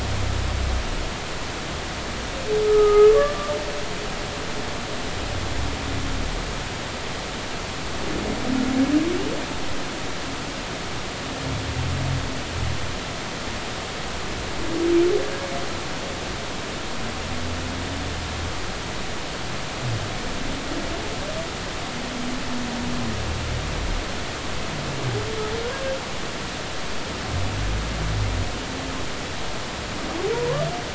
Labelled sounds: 2.6	3.5	humpback whale, 1.1 to 1.3 kHz
30.3	30.6	humpback whale, 0.90 to 1.2 kHz

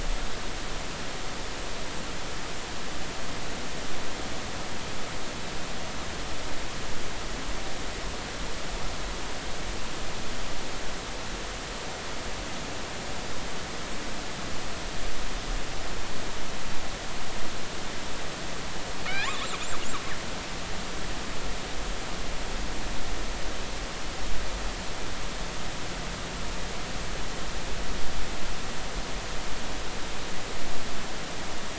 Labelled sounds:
19.1	19.4	killer whale, northern resident, G clan, GI subclan, call N30, 1.4 to 2.6 kHz

